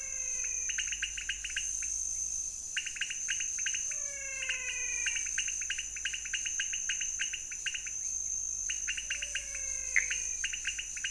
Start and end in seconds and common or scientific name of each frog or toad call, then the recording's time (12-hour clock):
0.0	0.8	menwig frog
0.0	11.1	pointedbelly frog
4.0	5.3	menwig frog
9.1	10.5	menwig frog
3:30am